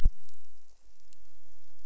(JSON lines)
{"label": "biophony", "recorder": "SoundTrap 300"}